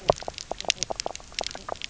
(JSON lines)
{"label": "biophony, knock croak", "recorder": "SoundTrap 300"}